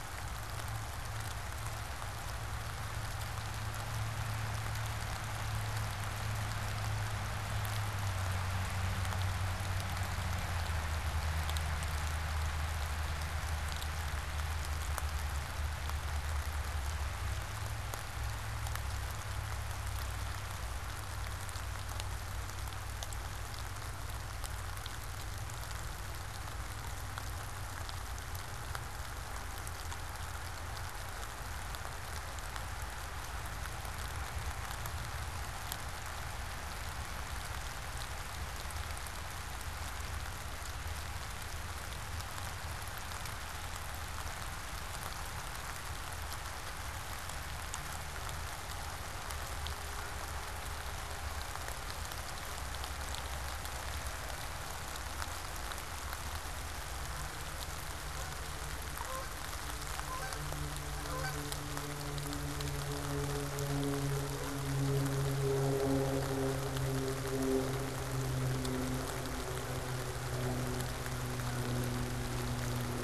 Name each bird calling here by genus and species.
Branta canadensis